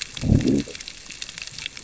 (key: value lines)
label: biophony, growl
recorder: SoundTrap 600 or HydroMoth